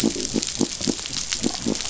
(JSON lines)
{"label": "biophony", "recorder": "SoundTrap 500"}